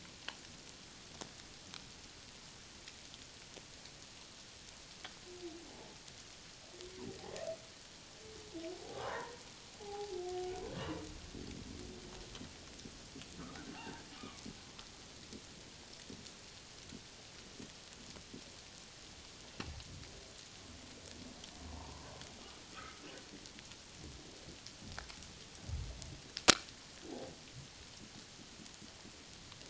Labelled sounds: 5.7	6.0	humpback whale, 0.78 to 0.91 kHz
8.8	9.4	humpback whale, 0.78 to 1.9 kHz
9.8	10.2	humpback whale, 0.78 to 0.91 kHz
10.8	11.0	humpback whale, 0.91 to 1.2 kHz
13.7	14.5	humpback whale, 0.78 to 2.5 kHz
21.8	22.1	humpback whale, 0.84 to 1.1 kHz
22.7	23.0	humpback whale, 1.1 to 1.4 kHz

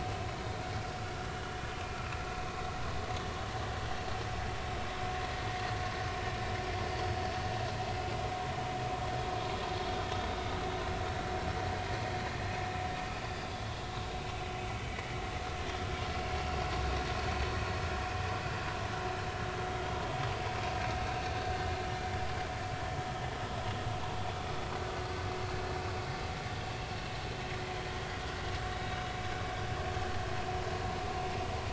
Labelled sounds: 6.6	6.9	vessel noise, 5.5 to 5.6 kHz
13.2	13.5	vessel noise, 4.8 to 5.0 kHz
29.7	30.0	vessel noise, 3.7 to 3.9 kHz

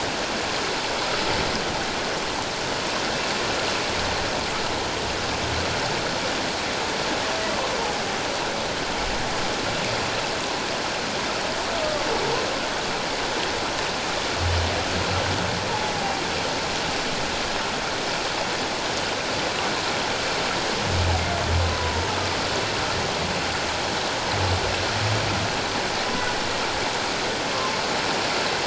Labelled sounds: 11.8	12.1	humpback whale, 1.1 to 1.2 kHz
16.0	16.2	humpback whale, 0.78 to 0.84 kHz
27.5	27.8	humpback whale, 1.0 to 1.2 kHz

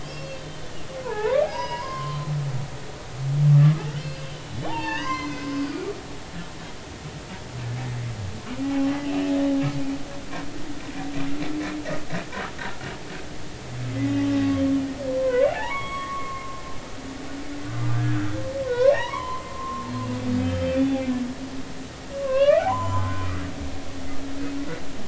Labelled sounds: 0.0	0.6	humpback whale, 2.6 to 5.0 kHz
1.0	2.3	humpback whale, 0.80 to 6.1 kHz
3.9	5.9	humpback whale, 0.80 to 6.5 kHz
8.6	8.9	humpback whale, 0.80 to 2.8 kHz
13.9	14.1	humpback whale, 1.9 to 2.2 kHz
15.1	16.6	humpback whale, 0.80 to 3.4 kHz
17.7	18.0	humpback whale, 1.2 to 1.3 kHz
18.6	19.9	humpback whale, 0.80 to 3.1 kHz
20.4	21.0	humpback whale, 0.80 to 3.6 kHz
22.1	23.3	humpback whale, 0.80 to 7.2 kHz

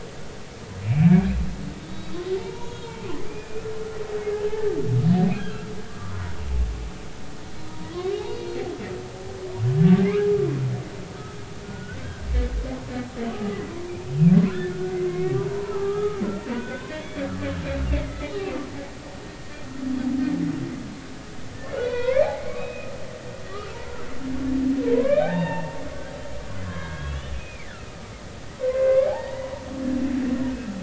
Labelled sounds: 0.8	1.2	humpback whale, 2.2 to 2.6 kHz
2.4	3.7	humpback whale, 0.80 to 6.8 kHz
4.5	5.7	humpback whale, 1.3 to 1.8 kHz
6.1	6.3	humpback whale, 0.93 to 1.1 kHz
7.7	7.9	humpback whale, 0.90 to 0.99 kHz
8.2	8.6	humpback whale, 4.2 to 4.4 kHz
10.0	10.3	humpback whale, 1.2 to 1.7 kHz
11.6	12.3	humpback whale, 1.4 to 1.7 kHz
13.4	17.2	humpback whale, 0.80 to 3.7 kHz
17.5	18.6	humpback whale, 1.4 to 3.0 kHz
21.8	22.9	humpback whale, 0.80 to 4.6 kHz
23.5	24.0	humpback whale, 0.86 to 1.4 kHz
24.9	25.8	humpback whale, 0.80 to 3.8 kHz
26.6	28.0	humpback whale, 0.93 to 3.6 kHz
28.6	29.7	humpback whale, 0.80 to 2.4 kHz

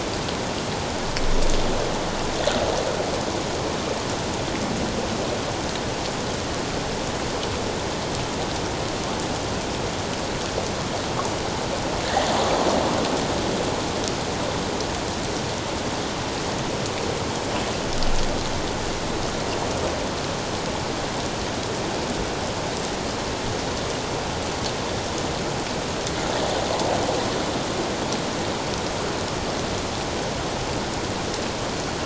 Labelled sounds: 12.0	12.3	water noise, 1.6 to 2.0 kHz

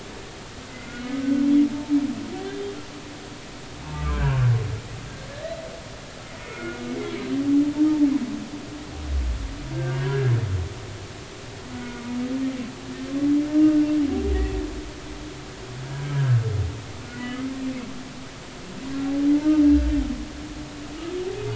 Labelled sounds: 0.7	1.5	humpback whale, 1.4 to 2.2 kHz
2.4	2.7	humpback whale, 3.5 to 3.7 kHz
3.8	4.4	humpback whale, 0.83 to 1.7 kHz
6.4	6.8	humpback whale, 1.3 to 2.2 kHz
7.8	8.1	humpback whale, 0.80 to 0.96 kHz
9.7	10.3	humpback whale, 1.3 to 1.7 kHz
11.8	12.0	humpback whale, 1.4 to 1.5 kHz
16.1	16.4	humpback whale, 1.5 to 1.8 kHz
17.1	17.5	humpback whale, 1.9 to 3.0 kHz

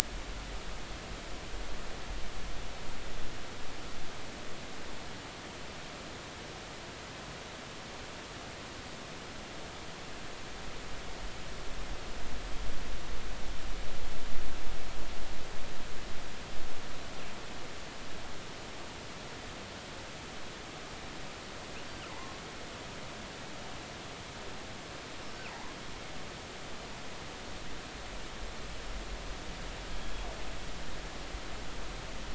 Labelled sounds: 25.5	25.8	killer whale, northern resident, G clan, call N23i, 0.80 to 1.1 kHz
30.0	30.3	killer whale, northern resident, G clan, GG subclan, call N28, 3.2 to 3.4 kHz

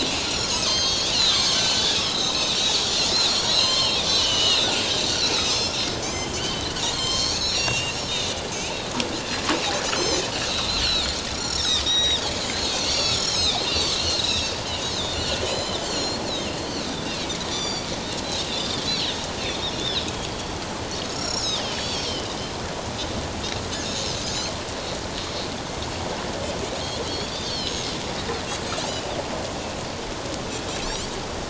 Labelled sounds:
1.1	2.9	Pacific white-sided dolphin, 1.0 to 7.2 kHz
3.3	8.8	Pacific white-sided dolphin, 0.94 to 8.0 kHz
9.8	17.9	Pacific white-sided dolphin, 1.8 to 7.7 kHz
18.5	19.0	Pacific white-sided dolphin, 3.2 to 3.8 kHz
19.8	20.1	Pacific white-sided dolphin, 4.9 to 5.5 kHz
21.0	22.1	Pacific white-sided dolphin, 3.2 to 7.1 kHz
27.1	27.8	Pacific white-sided dolphin, 2.9 to 5.6 kHz

